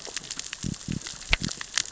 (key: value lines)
label: biophony
recorder: SoundTrap 600 or HydroMoth